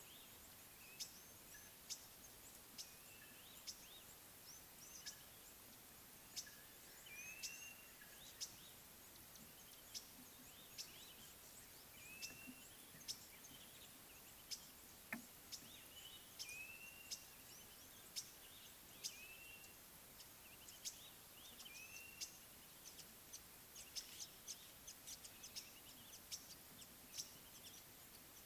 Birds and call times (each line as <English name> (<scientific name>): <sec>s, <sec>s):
Green-winged Pytilia (Pytilia melba): 1.0s, 1.9s, 2.8s, 6.4s, 10.0s, 14.5s, 18.2s, 19.1s, 20.9s, 26.3s
African Gray Flycatcher (Bradornis microrhynchus): 1.6s
Red-backed Scrub-Robin (Cercotrichas leucophrys): 3.9s
Blue-naped Mousebird (Urocolius macrourus): 7.3s, 12.1s, 16.6s, 19.3s, 21.8s